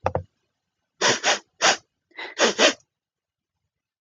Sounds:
Sniff